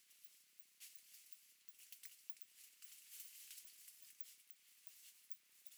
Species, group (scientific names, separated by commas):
Cyrtaspis scutata, Orthoptera